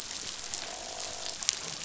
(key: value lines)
label: biophony, croak
recorder: SoundTrap 500